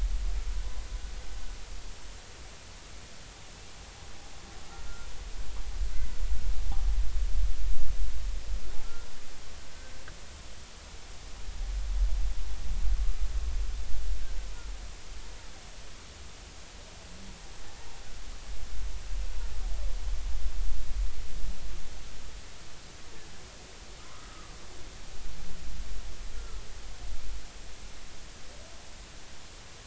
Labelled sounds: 4.7	5.1	humpback whale, 1.3 to 1.4 kHz
24.0	24.5	humpback whale, 0.96 to 1.3 kHz
26.4	26.6	humpback whale, 1.3 to 1.4 kHz

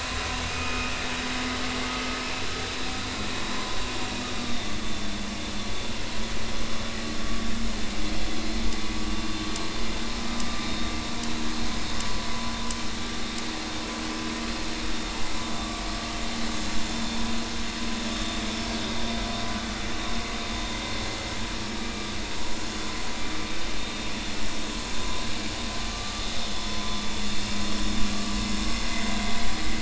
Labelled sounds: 0.5	1.0	vessel noise, 2.4 to 2.7 kHz
10.4	10.9	vessel noise, 1.2 to 3.9 kHz
18.1	18.4	vessel noise, 3.5 to 3.6 kHz

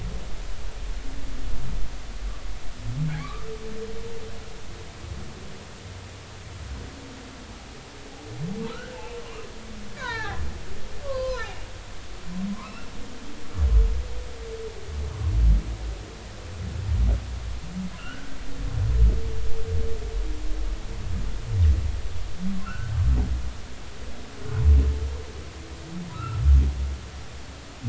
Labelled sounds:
3.2	3.5	humpback whale, 1.1 to 2.5 kHz
8.7	9.2	humpback whale, 1.2 to 2.7 kHz
9.9	11.6	humpback whale, 0.80 to 6.3 kHz
12.6	12.9	humpback whale, 2.5 to 2.8 kHz
18.0	18.4	humpback whale, 1.3 to 1.6 kHz
22.6	23.0	humpback whale, 1.2 to 1.6 kHz
26.1	26.4	humpback whale, 1.2 to 1.4 kHz

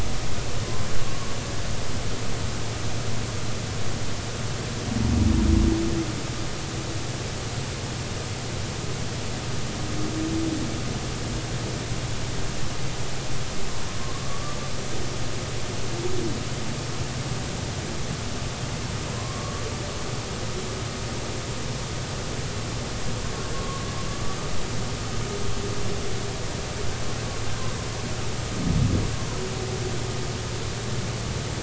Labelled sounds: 14.2	14.6	humpback whale, 1.1 to 1.2 kHz
19.2	19.6	humpback whale, 0.99 to 1.2 kHz
23.5	24.4	humpback whale, 0.99 to 1.2 kHz

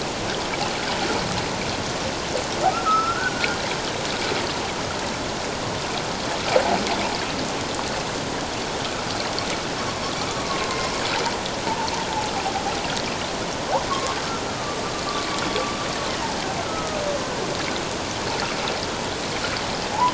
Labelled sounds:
2.7	3.6	humpback whale, 1.2 to 1.6 kHz
9.8	10.0	humpback whale, 0.97 to 1.2 kHz
10.7	11.0	humpback whale, 0.94 to 1.1 kHz
13.9	14.8	humpback whale, 1.0 to 1.3 kHz
16.6	17.0	humpback whale, 1.2 to 1.5 kHz

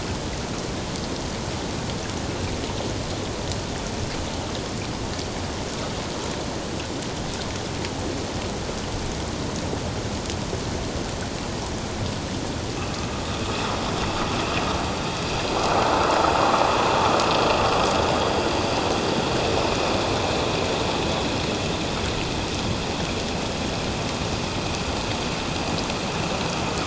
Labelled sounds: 13.4	13.7	vessel noise, 2.5 to 2.7 kHz

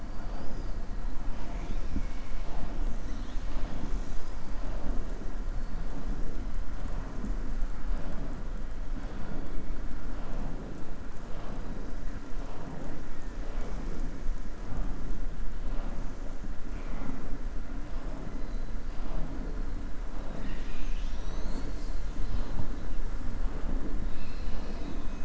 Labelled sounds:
0.1	0.7	killer whale, southern resident, 4.4 to 6.0 kHz
24.0	25.2	killer whale, southern resident, 2.4 to 5.5 kHz

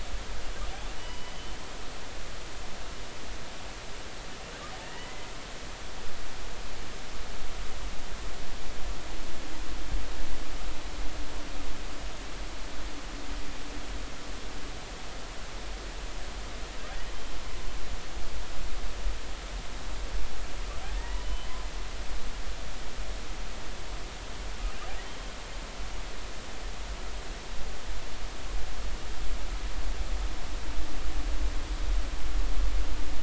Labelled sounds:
1.0	1.6	humpback whale, 2.9 to 3.1 kHz
4.8	5.3	humpback whale, 1.7 to 3.0 kHz
21.0	21.5	humpback whale, 1.8 to 3.1 kHz

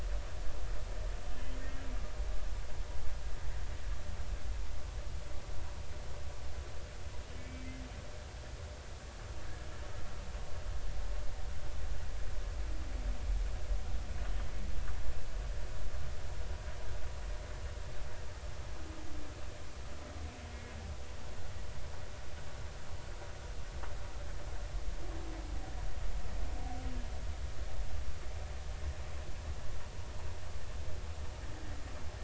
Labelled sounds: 7.4	7.7	humpback whale, 2.2 to 2.3 kHz

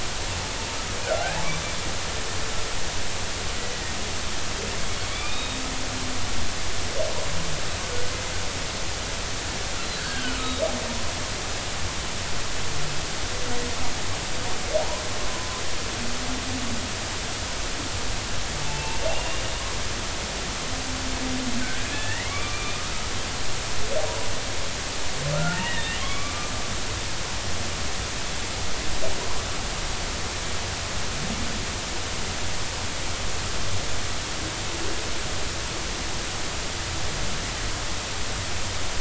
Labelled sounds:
1.0	1.4	humpback whale, 1.3 to 1.8 kHz
5.1	5.6	humpback whale, 2.2 to 3.8 kHz
9.9	10.6	humpback whale, 1.4 to 3.9 kHz
15.3	15.6	humpback whale, 0.96 to 1.1 kHz
18.6	19.4	humpback whale, 0.83 to 2.9 kHz
21.6	22.8	humpback whale, 1.1 to 2.9 kHz
25.3	26.5	humpback whale, 1.0 to 2.9 kHz

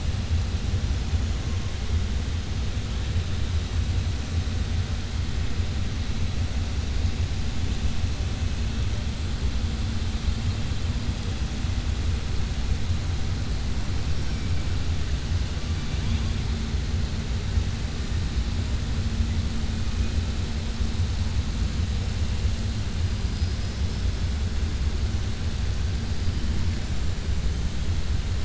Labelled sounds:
15.7	16.4	killer whale, southern resident, 2.3 to 3.8 kHz
23.3	23.8	killer whale, southern resident, 4.2 to 5.2 kHz

